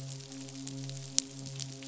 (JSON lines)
{"label": "biophony, midshipman", "recorder": "SoundTrap 500"}